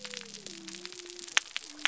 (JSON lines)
{"label": "biophony", "recorder": "SoundTrap 300"}